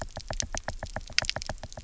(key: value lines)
label: biophony, knock
recorder: SoundTrap 300